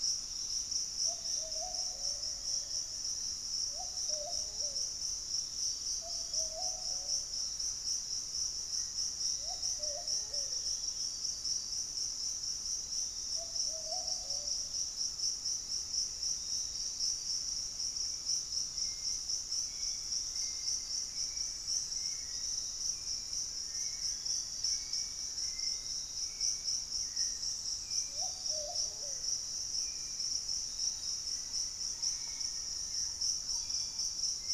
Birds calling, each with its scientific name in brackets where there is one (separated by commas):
Pygmy Antwren (Myrmotherula brachyura), Black-faced Antthrush (Formicarius analis), Hauxwell's Thrush (Turdus hauxwelli), Piratic Flycatcher (Legatus leucophaius), Thrush-like Wren (Campylorhynchus turdinus)